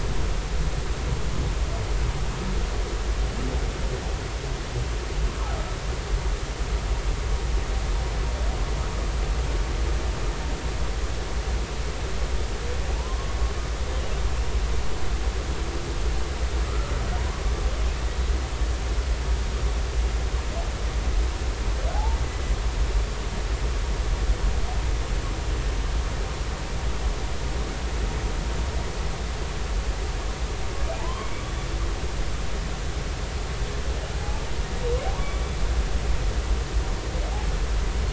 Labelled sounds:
12.9	13.3	humpback whale, 0.80 to 1.1 kHz
16.7	17.4	humpback whale, 0.90 to 1.4 kHz
21.9	22.2	humpback whale, 0.80 to 0.96 kHz
31.0	31.7	humpback whale, 0.83 to 3.5 kHz
34.2	34.4	humpback whale, 0.80 to 0.93 kHz
35.0	35.4	humpback whale, 0.80 to 1.2 kHz

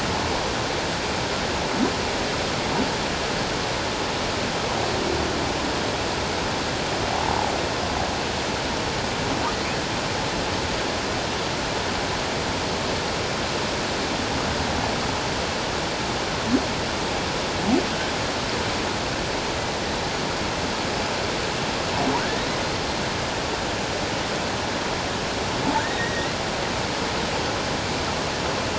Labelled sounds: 25.8	26.3	humpback whale, 1.4 to 2.0 kHz

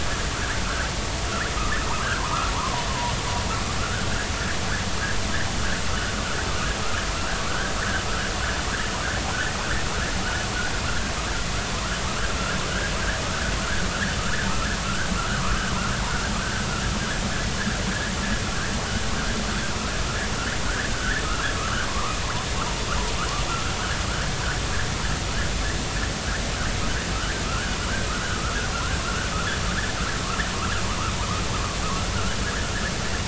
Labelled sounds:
2.2	3.1	vessel noise, 0.86 to 1.4 kHz
7.5	7.7	vessel noise, 1.2 to 1.7 kHz
12.7	12.9	vessel noise, 1.4 to 1.8 kHz
14.8	15.1	vessel noise, 1.3 to 1.7 kHz
21.0	21.2	vessel noise, 1.3 to 2.0 kHz
21.9	22.2	vessel noise, 0.93 to 1.3 kHz
23.5	23.7	vessel noise, 1.2 to 1.6 kHz
27.1	27.8	vessel noise, 1.0 to 1.8 kHz
28.3	29.0	vessel noise, 1.2 to 1.7 kHz

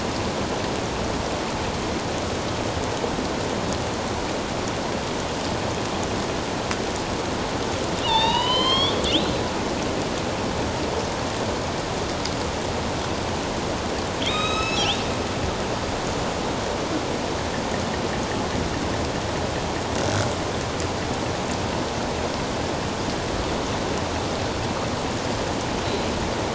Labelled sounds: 8.0	9.3	killer whale, northern resident, A clan, AB subclan, 0.81 to 5.9 kHz
14.2	15.0	killer whale, northern resident, A clan, AB subclan, 1.2 to 7.7 kHz

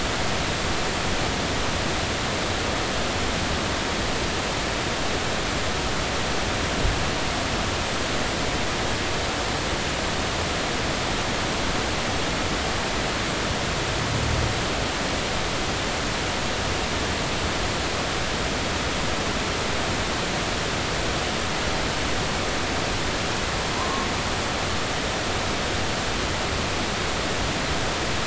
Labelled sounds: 23.8	24.1	humpback whale, 0.93 to 1.1 kHz

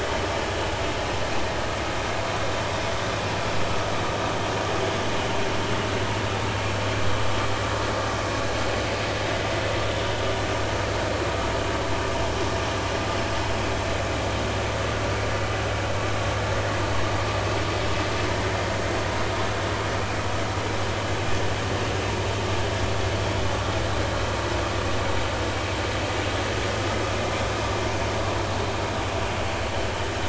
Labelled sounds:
27.5	27.8	vessel noise, 4.9 to 5.1 kHz

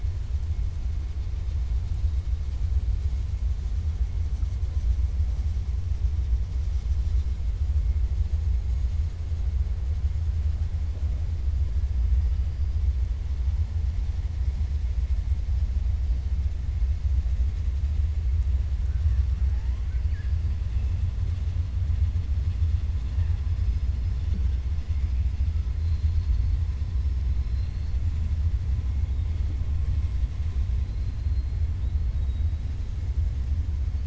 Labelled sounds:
18.8	19.2	killer whale, 1.1 to 2.0 kHz
25.8	26.5	killer whale, 3.6 to 5.1 kHz
27.3	28.0	killer whale, 3.9 to 5.4 kHz

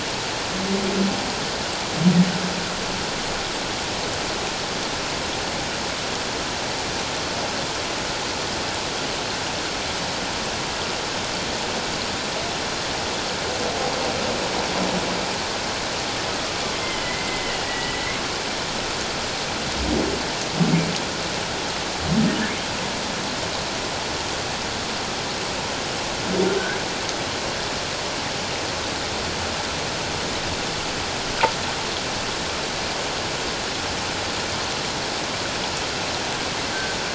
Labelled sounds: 17.0	18.2	humpback whale, 1.8 to 3.0 kHz

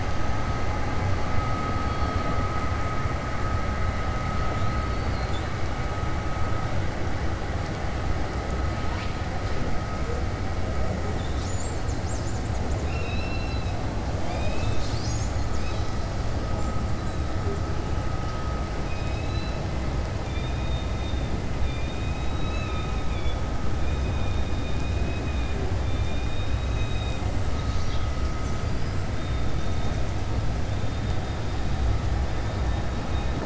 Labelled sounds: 12.8	13.8	killer whale, 2.5 to 5.4 kHz
18.8	19.6	killer whale, 1.8 to 5.1 kHz
20.2	20.9	killer whale, 2.3 to 3.8 kHz
24.6	27.2	killer whale, 1.8 to 4.5 kHz
28.6	29.0	killer whale, 4.6 to 5.1 kHz

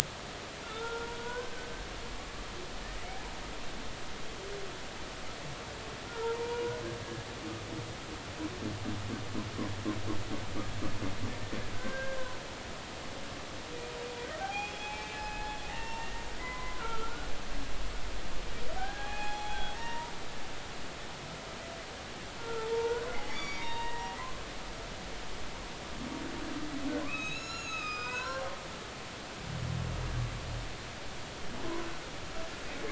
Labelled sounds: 0.6	1.7	humpback whale, 0.86 to 1.6 kHz
6.1	6.8	humpback whale, 0.86 to 1.5 kHz
11.7	12.2	humpback whale, 1.5 to 1.7 kHz
14.4	16.1	humpback whale, 0.80 to 3.4 kHz
16.4	17.3	humpback whale, 0.86 to 2.1 kHz
18.8	20.1	humpback whale, 0.80 to 4.2 kHz
22.4	24.2	humpback whale, 0.83 to 5.8 kHz
27.0	28.5	humpback whale, 0.93 to 7.1 kHz

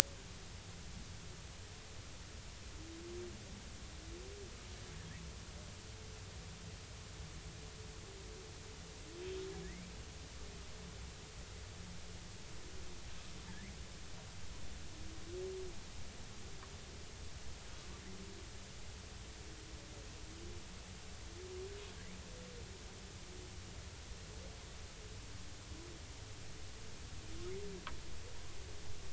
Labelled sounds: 9.6	9.9	humpback whale, 1.6 to 2.5 kHz
13.5	13.8	humpback whale, 1.6 to 2.4 kHz

